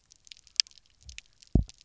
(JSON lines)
{"label": "biophony, double pulse", "recorder": "SoundTrap 300"}